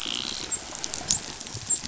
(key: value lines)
label: biophony, dolphin
recorder: SoundTrap 500